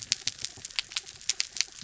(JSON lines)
{"label": "anthrophony, mechanical", "recorder": "SoundTrap 300"}